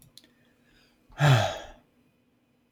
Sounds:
Sigh